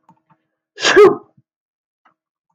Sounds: Sneeze